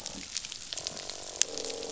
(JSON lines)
{"label": "biophony, croak", "recorder": "SoundTrap 500"}